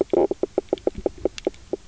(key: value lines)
label: biophony, knock croak
recorder: SoundTrap 300